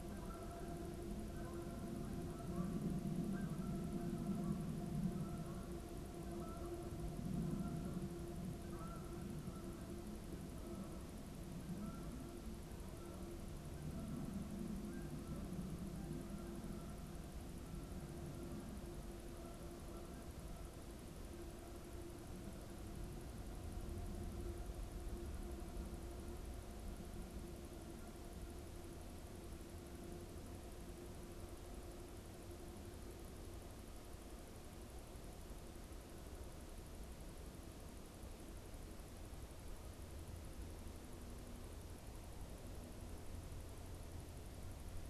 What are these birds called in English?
Canada Goose